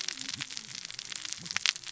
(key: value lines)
label: biophony, cascading saw
recorder: SoundTrap 600 or HydroMoth